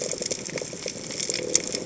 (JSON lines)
{"label": "biophony", "recorder": "HydroMoth"}
{"label": "biophony, chatter", "recorder": "HydroMoth"}